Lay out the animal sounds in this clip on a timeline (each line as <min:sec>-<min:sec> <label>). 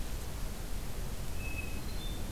0:01.3-0:02.3 Hermit Thrush (Catharus guttatus)